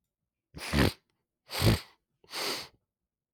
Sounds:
Sniff